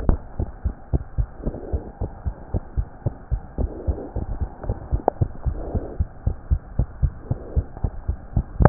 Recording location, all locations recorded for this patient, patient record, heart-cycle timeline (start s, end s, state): pulmonary valve (PV)
aortic valve (AV)+pulmonary valve (PV)+tricuspid valve (TV)+mitral valve (MV)
#Age: Child
#Sex: Female
#Height: 86.0 cm
#Weight: 11.7 kg
#Pregnancy status: False
#Murmur: Absent
#Murmur locations: nan
#Most audible location: nan
#Systolic murmur timing: nan
#Systolic murmur shape: nan
#Systolic murmur grading: nan
#Systolic murmur pitch: nan
#Systolic murmur quality: nan
#Diastolic murmur timing: nan
#Diastolic murmur shape: nan
#Diastolic murmur grading: nan
#Diastolic murmur pitch: nan
#Diastolic murmur quality: nan
#Outcome: Abnormal
#Campaign: 2015 screening campaign
0.00	0.36	unannotated
0.36	0.50	S1
0.50	0.62	systole
0.62	0.76	S2
0.76	0.92	diastole
0.92	1.02	S1
1.02	1.16	systole
1.16	1.30	S2
1.30	1.44	diastole
1.44	1.56	S1
1.56	1.72	systole
1.72	1.86	S2
1.86	2.02	diastole
2.02	2.12	S1
2.12	2.24	systole
2.24	2.34	S2
2.34	2.52	diastole
2.52	2.64	S1
2.64	2.76	systole
2.76	2.86	S2
2.86	3.02	diastole
3.02	3.16	S1
3.16	3.30	systole
3.30	3.44	S2
3.44	3.60	diastole
3.60	3.72	S1
3.72	3.86	systole
3.86	3.98	S2
3.98	4.14	diastole
4.14	4.26	S1
4.26	4.40	systole
4.40	4.50	S2
4.50	4.66	diastole
4.66	4.78	S1
4.78	4.90	systole
4.90	5.02	S2
5.02	5.18	diastole
5.18	5.32	S1
5.32	5.44	systole
5.44	5.58	S2
5.58	5.73	diastole
5.73	5.84	S1
5.84	5.98	systole
5.98	6.08	S2
6.08	6.24	diastole
6.24	6.38	S1
6.38	6.48	systole
6.48	6.62	S2
6.62	6.76	diastole
6.76	6.88	S1
6.88	7.00	systole
7.00	7.16	S2
7.16	7.28	diastole
7.28	7.40	S1
7.40	7.52	systole
7.52	7.66	S2
7.66	7.81	diastole
7.81	7.92	S1
7.92	8.04	systole
8.04	8.16	S2
8.16	8.32	diastole
8.32	8.46	S1
8.46	8.69	unannotated